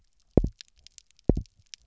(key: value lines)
label: biophony, double pulse
recorder: SoundTrap 300